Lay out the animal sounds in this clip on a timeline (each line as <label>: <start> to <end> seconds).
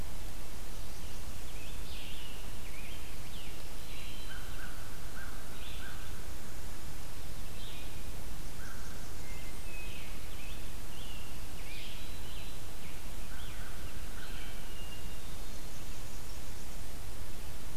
Red-eyed Vireo (Vireo olivaceus): 0.0 to 14.5 seconds
Scarlet Tanager (Piranga olivacea): 0.8 to 3.7 seconds
Black-throated Green Warbler (Setophaga virens): 3.7 to 4.5 seconds
American Crow (Corvus brachyrhynchos): 4.1 to 6.2 seconds
Blackburnian Warbler (Setophaga fusca): 8.3 to 9.9 seconds
American Crow (Corvus brachyrhynchos): 8.6 to 9.0 seconds
Hermit Thrush (Catharus guttatus): 8.9 to 10.2 seconds
Scarlet Tanager (Piranga olivacea): 9.7 to 13.0 seconds
American Crow (Corvus brachyrhynchos): 13.2 to 14.7 seconds
Hermit Thrush (Catharus guttatus): 14.4 to 16.0 seconds
Blackburnian Warbler (Setophaga fusca): 15.2 to 17.1 seconds